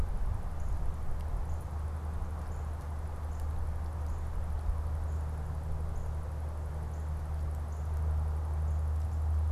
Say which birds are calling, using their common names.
American Crow